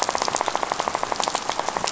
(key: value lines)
label: biophony, rattle
recorder: SoundTrap 500